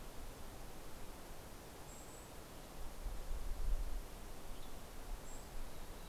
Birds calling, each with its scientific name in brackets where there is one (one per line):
Golden-crowned Kinglet (Regulus satrapa)
Mountain Chickadee (Poecile gambeli)